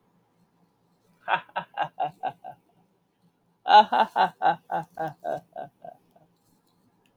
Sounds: Laughter